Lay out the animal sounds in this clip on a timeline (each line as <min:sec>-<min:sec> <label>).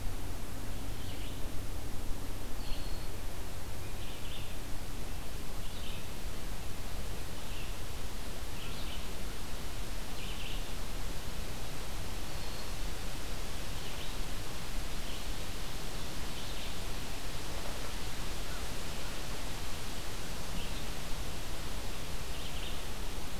0:00.0-0:23.4 American Crow (Corvus brachyrhynchos)
0:02.5-0:03.2 Eastern Wood-Pewee (Contopus virens)